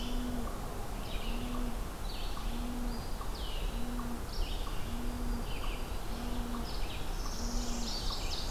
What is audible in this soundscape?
Red-eyed Vireo, unknown mammal, Black-throated Green Warbler, Northern Parula, Ovenbird